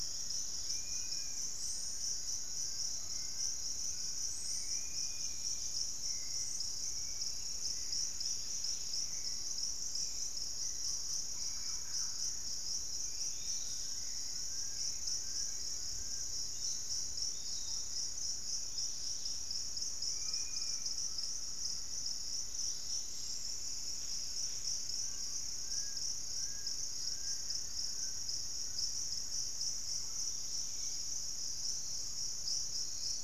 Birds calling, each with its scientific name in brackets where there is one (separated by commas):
Dusky-capped Greenlet (Pachysylvia hypoxantha), Undulated Tinamou (Crypturellus undulatus), Dusky-capped Flycatcher (Myiarchus tuberculifer), Piratic Flycatcher (Legatus leucophaius), Thrush-like Wren (Campylorhynchus turdinus), Hauxwell's Thrush (Turdus hauxwelli), Plain-winged Antshrike (Thamnophilus schistaceus), Fasciated Antshrike (Cymbilaimus lineatus), unidentified bird